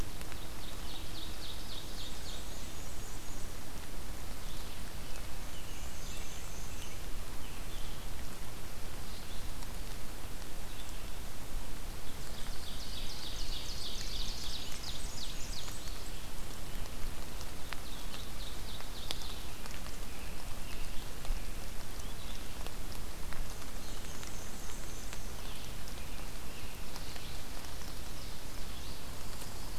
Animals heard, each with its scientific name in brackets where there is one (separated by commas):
American Robin (Turdus migratorius), Black-and-white Warbler (Mniotilta varia), Ovenbird (Seiurus aurocapilla)